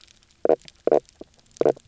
{"label": "biophony, knock croak", "recorder": "SoundTrap 300"}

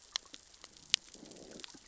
{"label": "biophony, growl", "recorder": "SoundTrap 600 or HydroMoth"}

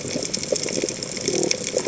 {"label": "biophony", "recorder": "HydroMoth"}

